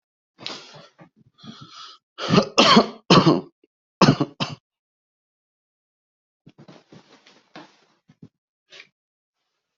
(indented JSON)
{
  "expert_labels": [
    {
      "quality": "good",
      "cough_type": "dry",
      "dyspnea": false,
      "wheezing": false,
      "stridor": false,
      "choking": false,
      "congestion": false,
      "nothing": true,
      "diagnosis": "upper respiratory tract infection",
      "severity": "mild"
    }
  ],
  "age": 34,
  "gender": "male",
  "respiratory_condition": false,
  "fever_muscle_pain": false,
  "status": "healthy"
}